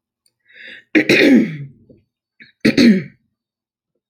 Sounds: Throat clearing